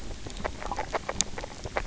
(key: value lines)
label: biophony, grazing
recorder: SoundTrap 300